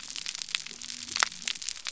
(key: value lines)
label: biophony
recorder: SoundTrap 300